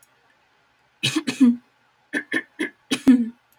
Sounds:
Throat clearing